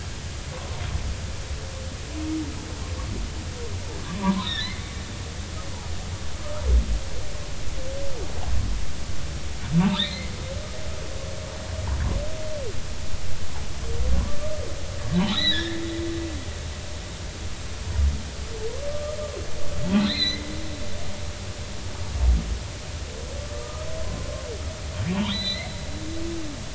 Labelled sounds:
4.2	4.8	humpback whale, 0.90 to 4.2 kHz
9.8	10.3	humpback whale, 1.7 to 4.4 kHz
15.2	15.8	humpback whale, 1.6 to 4.2 kHz
18.9	19.2	humpback whale, 1.2 to 1.3 kHz
20.0	20.4	humpback whale, 1.7 to 4.3 kHz
23.5	23.9	humpback whale, 1.2 to 1.3 kHz
25.3	25.7	humpback whale, 1.8 to 4.2 kHz

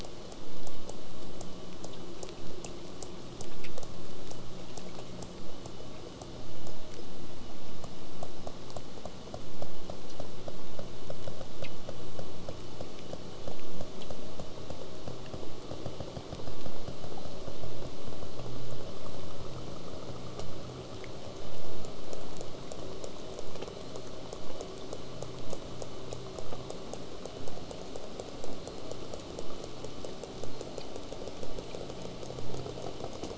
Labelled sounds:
0.0	6.8	killer whale, southern resident, J pod, 3.6 to 8.0 kHz
23.6	24.2	killer whale, southern resident, J pod, whistle, 3.1 to 4.5 kHz
28.4	29.0	killer whale, southern resident, J pod, whistle, 3.9 to 4.4 kHz
30.5	30.9	killer whale, southern resident, J pod, whistle, 3.9 to 4.4 kHz

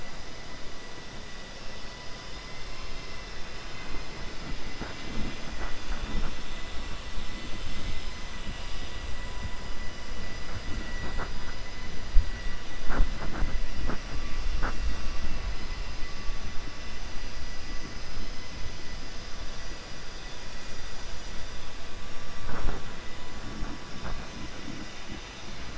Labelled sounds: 3.7	4.1	vessel noise, 0.94 to 2.7 kHz

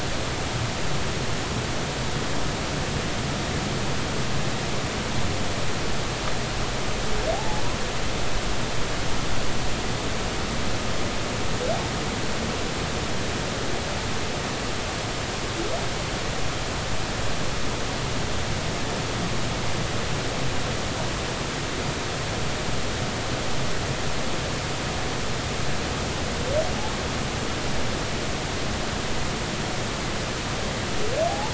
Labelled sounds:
7.3	7.6	humpback whale, 0.80 to 0.93 kHz
31.3	31.5	humpback whale, 0.80 to 0.99 kHz

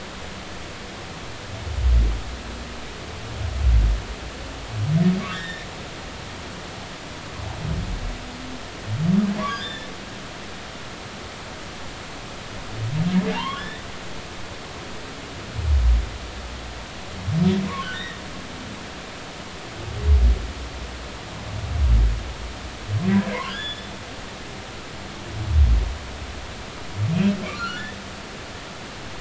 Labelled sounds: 5.3	5.7	humpback whale, 1.4 to 3.9 kHz
9.5	9.9	humpback whale, 1.5 to 3.6 kHz
13.3	13.8	humpback whale, 0.83 to 3.7 kHz
17.7	18.2	humpback whale, 0.93 to 2.1 kHz
23.4	23.9	humpback whale, 1.3 to 6.9 kHz
27.6	27.9	humpback whale, 1.3 to 1.5 kHz

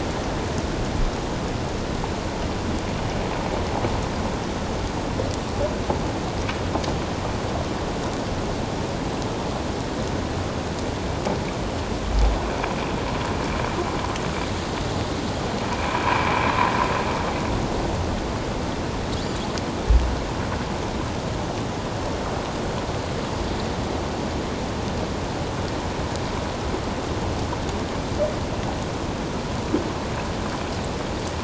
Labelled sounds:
16.1	16.5	vessel noise, 2.2 to 2.6 kHz

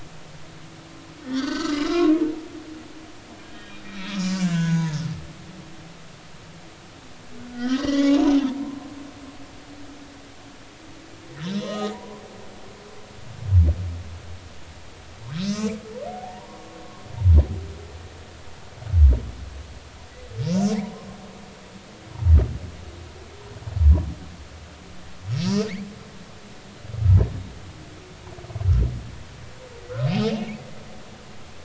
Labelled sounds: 1.2	2.1	humpback whale, 1.0 to 4.8 kHz
3.4	5.0	humpback whale, 0.86 to 7.3 kHz
7.5	8.3	humpback whale, 0.80 to 7.0 kHz
11.4	12.2	humpback whale, 0.90 to 4.2 kHz
15.4	15.8	humpback whale, 4.8 to 6.4 kHz
16.1	16.6	humpback whale, 0.80 to 1.2 kHz
20.4	21.1	humpback whale, 0.80 to 5.9 kHz
25.3	25.6	humpback whale, 5.6 to 5.9 kHz
30.1	30.4	humpback whale, 2.3 to 3.2 kHz

